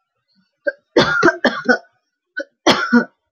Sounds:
Cough